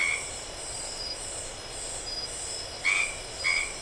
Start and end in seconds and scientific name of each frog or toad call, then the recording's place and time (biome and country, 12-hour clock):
2.7	3.8	Boana albomarginata
Atlantic Forest, Brazil, 8:15pm